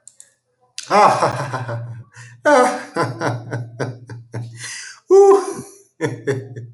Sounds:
Laughter